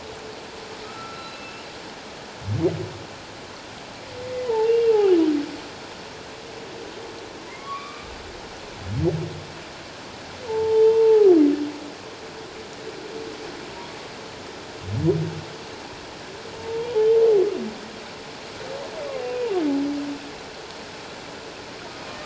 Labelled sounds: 0.8	1.6	humpback whale, 1.2 to 4.1 kHz
4.4	5.0	humpback whale, 0.81 to 2.8 kHz
7.5	8.1	humpback whale, 1.0 to 2.5 kHz
10.5	11.3	humpback whale, 0.78 to 3.2 kHz
16.6	16.9	humpback whale, 0.88 to 1.0 kHz
19.2	19.5	humpback whale, 2.4 to 2.6 kHz

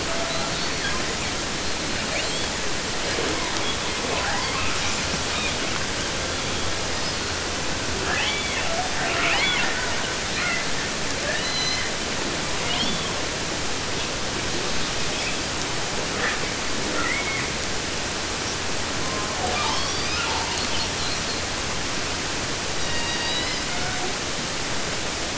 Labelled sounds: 0.0	2.6	killer whale, 0 to 8.0 kHz
3.0	7.5	killer whale, 0.01 to 8.0 kHz
7.8	8.9	killer whale, southern resident, J pod, call S44, 0.25 to 6.5 kHz
8.9	10.9	killer whale, 0.26 to 6.8 kHz
11.1	12.1	killer whale, southern resident, 0.23 to 8.0 kHz
12.6	13.1	killer whale, 0.05 to 6.0 kHz
13.9	14.2	killer whale, 2.2 to 7.0 kHz
15.0	15.5	killer whale, 2.0 to 7.3 kHz
16.1	16.5	killer whale, 0.19 to 6.6 kHz
16.7	17.6	killer whale, southern resident, J pod, call S44, 0.11 to 3.0 kHz
19.0	21.4	killer whale, southern resident, 0.15 to 7.6 kHz
22.7	24.2	killer whale, southern resident, J pod, call S01, 0.13 to 7.0 kHz

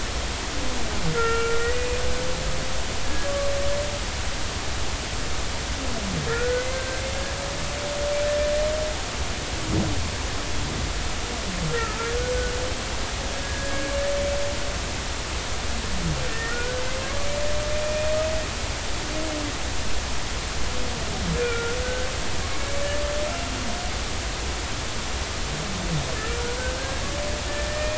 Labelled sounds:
1.1	2.0	humpback whale, 1.3 to 2.9 kHz
3.0	3.3	humpback whale, 1.6 to 1.8 kHz
6.3	7.0	humpback whale, 1.3 to 1.6 kHz
11.7	12.1	humpback whale, 1.2 to 1.4 kHz
13.4	13.9	humpback whale, 1.6 to 1.7 kHz
16.3	16.8	humpback whale, 1.3 to 2.0 kHz
17.8	18.1	humpback whale, 2.4 to 2.5 kHz
21.4	22.1	humpback whale, 1.3 to 1.7 kHz
26.7	27.9	humpback whale, 1.5 to 2.5 kHz

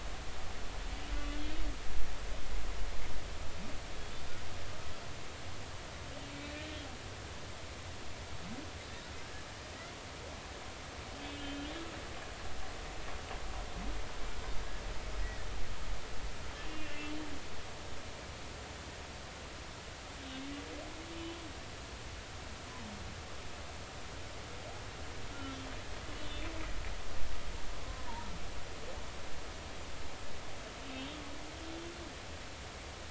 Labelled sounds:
11.2	11.7	humpback whale, 3.0 to 3.4 kHz
15.2	15.5	humpback whale, 1.7 to 2.0 kHz
16.7	17.0	humpback whale, 2.7 to 2.8 kHz
22.1	22.4	humpback whale, 2.9 to 3.1 kHz
27.1	28.1	humpback whale, 0.99 to 3.0 kHz

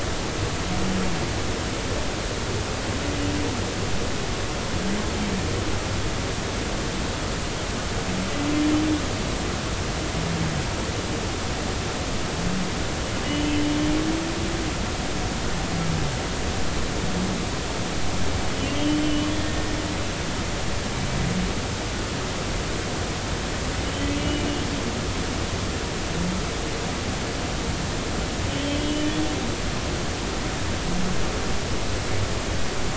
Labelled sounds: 19.0	19.3	humpback whale, 2.9 to 3.1 kHz
24.2	24.4	humpback whale, 2.8 to 3.0 kHz
28.5	29.1	humpback whale, 2.9 to 3.2 kHz

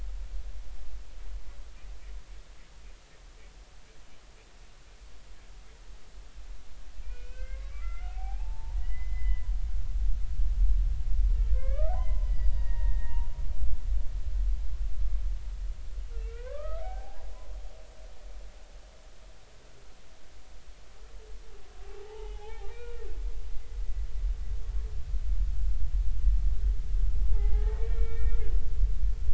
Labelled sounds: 7.0	9.5	humpback whale, 0.80 to 3.2 kHz
11.5	13.7	humpback whale, 0.80 to 5.0 kHz
16.1	17.5	humpback whale, 0.80 to 2.8 kHz
21.8	23.0	humpback whale, 0.80 to 3.2 kHz
23.5	23.8	humpback whale, 2.0 to 2.1 kHz
27.3	28.4	humpback whale, 0.80 to 2.4 kHz

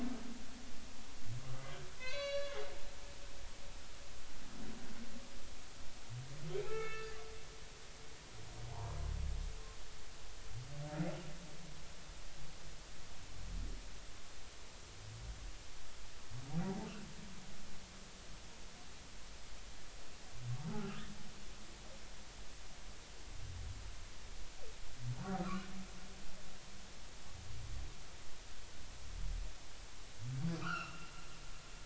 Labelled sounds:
2.0	2.6	humpback whale, 0.96 to 6.3 kHz
6.6	7.2	humpback whale, 0.80 to 2.7 kHz
8.7	9.0	humpback whale, 0.80 to 1.1 kHz
20.7	21.1	humpback whale, 1.2 to 1.5 kHz
25.4	25.7	humpback whale, 1.0 to 1.6 kHz
30.6	31.1	humpback whale, 1.1 to 3.1 kHz

